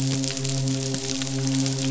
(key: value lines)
label: biophony, midshipman
recorder: SoundTrap 500